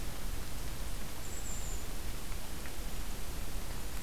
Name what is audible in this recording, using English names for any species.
Golden-crowned Kinglet